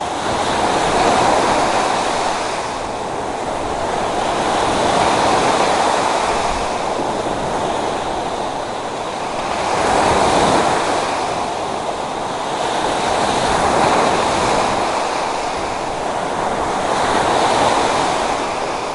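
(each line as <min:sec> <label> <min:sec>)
0:00.0 Waves of water create a recurring swooshing sound. 0:18.9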